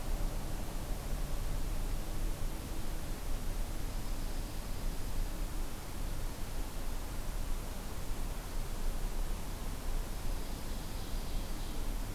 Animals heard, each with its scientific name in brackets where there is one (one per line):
Dark-eyed Junco (Junco hyemalis)
Ovenbird (Seiurus aurocapilla)